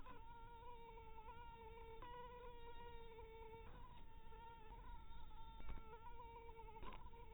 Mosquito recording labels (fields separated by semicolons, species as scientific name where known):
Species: mosquito; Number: one; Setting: cup